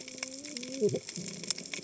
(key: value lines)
label: biophony, cascading saw
recorder: HydroMoth